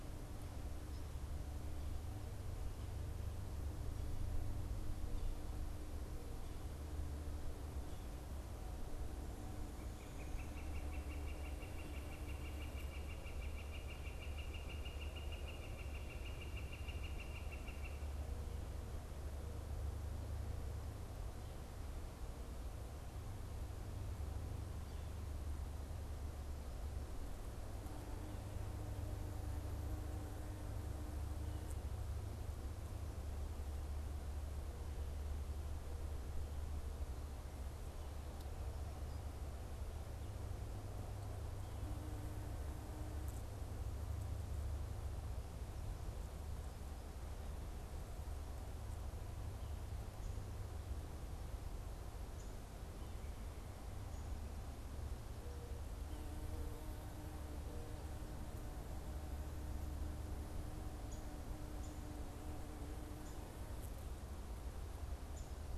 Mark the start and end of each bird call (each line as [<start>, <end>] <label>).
[9.58, 18.18] Northern Flicker (Colaptes auratus)
[60.78, 65.68] unidentified bird